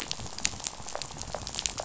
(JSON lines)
{"label": "biophony, rattle", "recorder": "SoundTrap 500"}